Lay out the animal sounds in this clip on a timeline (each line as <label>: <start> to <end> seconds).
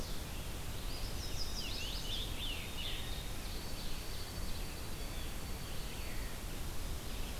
Red-eyed Vireo (Vireo olivaceus): 0.0 to 7.4 seconds
Eastern Wood-Pewee (Contopus virens): 0.6 to 2.3 seconds
Chestnut-sided Warbler (Setophaga pensylvanica): 1.0 to 2.3 seconds
Scarlet Tanager (Piranga olivacea): 1.4 to 3.3 seconds
White-throated Sparrow (Zonotrichia albicollis): 2.5 to 6.6 seconds
Ovenbird (Seiurus aurocapilla): 2.6 to 4.8 seconds